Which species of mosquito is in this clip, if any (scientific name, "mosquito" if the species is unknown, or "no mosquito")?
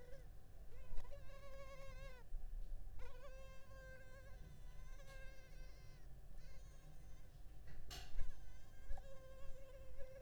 Culex pipiens complex